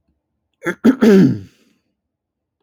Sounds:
Throat clearing